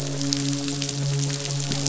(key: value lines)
label: biophony, midshipman
recorder: SoundTrap 500

label: biophony, croak
recorder: SoundTrap 500